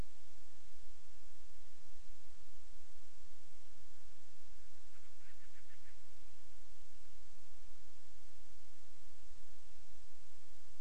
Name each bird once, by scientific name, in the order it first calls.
Hydrobates castro